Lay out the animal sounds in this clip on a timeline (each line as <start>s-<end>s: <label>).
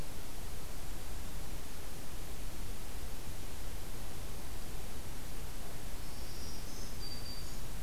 5.9s-7.7s: Black-throated Green Warbler (Setophaga virens)